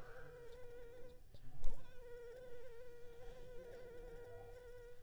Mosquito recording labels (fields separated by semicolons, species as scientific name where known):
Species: Anopheles arabiensis; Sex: female; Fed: unfed; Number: one; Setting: cup